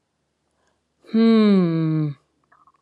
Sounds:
Sigh